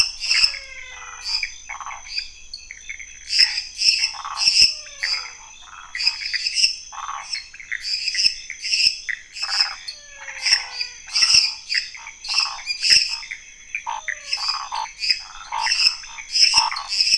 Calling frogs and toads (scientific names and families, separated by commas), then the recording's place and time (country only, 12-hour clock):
Pithecopus azureus (Hylidae), Physalaemus albonotatus (Leptodactylidae), Phyllomedusa sauvagii (Hylidae), Dendropsophus minutus (Hylidae), Boana raniceps (Hylidae), Scinax fuscovarius (Hylidae), Dendropsophus nanus (Hylidae)
Brazil, 11:00pm